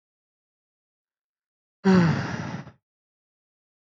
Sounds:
Sigh